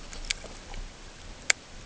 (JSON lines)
{"label": "ambient", "recorder": "HydroMoth"}